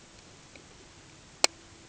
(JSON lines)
{"label": "ambient", "recorder": "HydroMoth"}